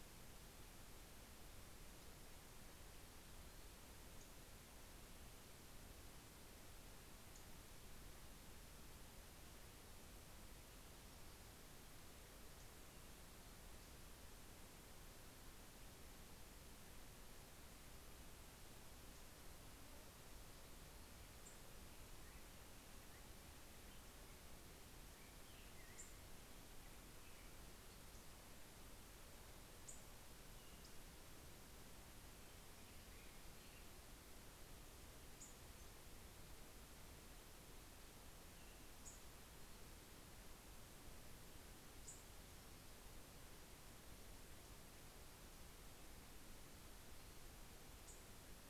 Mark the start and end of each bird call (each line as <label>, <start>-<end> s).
American Robin (Turdus migratorius), 21.7-34.3 s
Nashville Warbler (Leiothlypis ruficapilla), 25.3-48.7 s